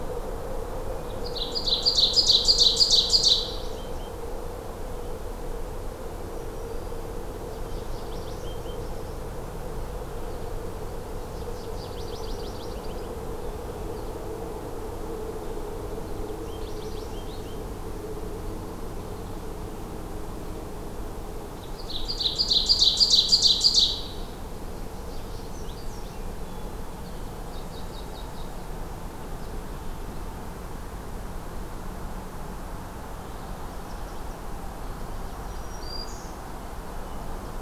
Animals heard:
Ovenbird (Seiurus aurocapilla)
Black-throated Green Warbler (Setophaga virens)
American Goldfinch (Spinus tristis)
Hermit Thrush (Catharus guttatus)

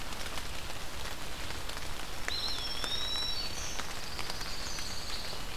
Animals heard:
Eastern Wood-Pewee (Contopus virens)
Black-throated Green Warbler (Setophaga virens)
Pine Warbler (Setophaga pinus)
Blackburnian Warbler (Setophaga fusca)

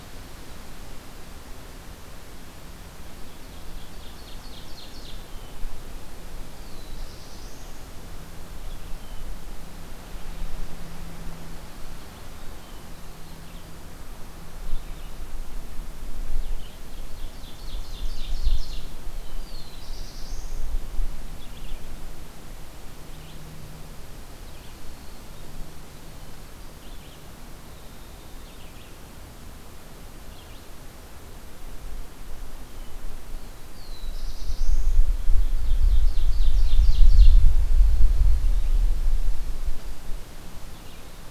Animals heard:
Red-eyed Vireo (Vireo olivaceus)
Ovenbird (Seiurus aurocapilla)
Winter Wren (Troglodytes hiemalis)
Black-throated Blue Warbler (Setophaga caerulescens)

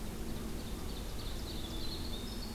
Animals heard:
Winter Wren (Troglodytes hiemalis)
Ovenbird (Seiurus aurocapilla)

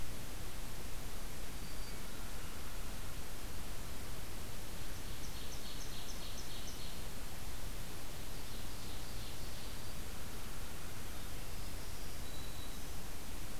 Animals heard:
Ovenbird (Seiurus aurocapilla)
Black-throated Green Warbler (Setophaga virens)
Hermit Thrush (Catharus guttatus)

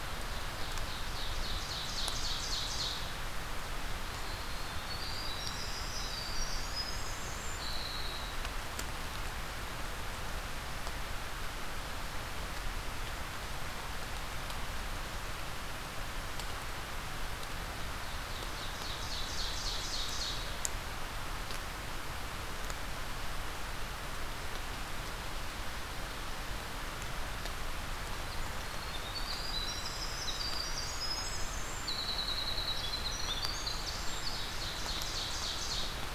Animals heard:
Ovenbird (Seiurus aurocapilla)
Winter Wren (Troglodytes hiemalis)

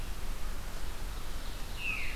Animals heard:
Ovenbird (Seiurus aurocapilla)

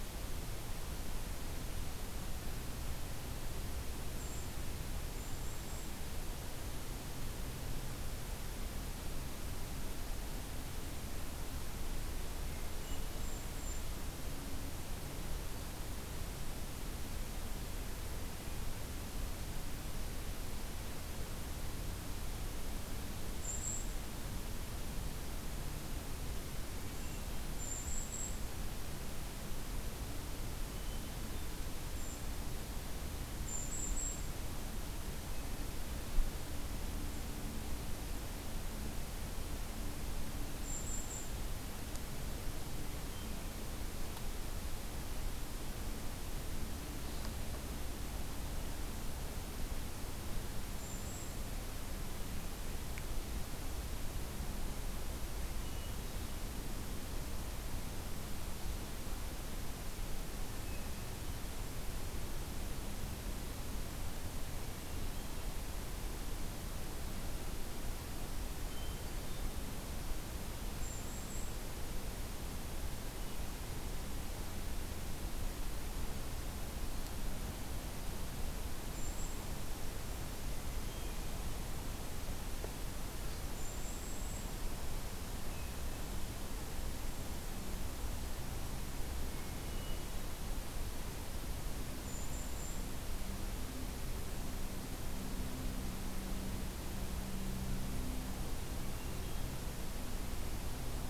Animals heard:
Hermit Thrush (Catharus guttatus)
Brown Creeper (Certhia americana)
Golden-crowned Kinglet (Regulus satrapa)

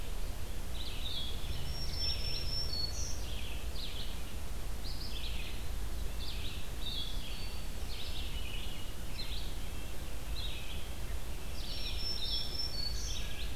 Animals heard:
Song Sparrow (Melospiza melodia)
Blue Jay (Cyanocitta cristata)
Red-eyed Vireo (Vireo olivaceus)
Black-throated Green Warbler (Setophaga virens)
Blue-headed Vireo (Vireo solitarius)
Red-breasted Nuthatch (Sitta canadensis)

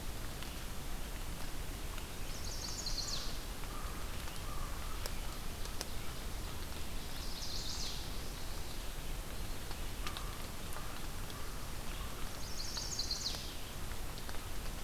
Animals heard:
Chestnut-sided Warbler (Setophaga pensylvanica)
American Crow (Corvus brachyrhynchos)

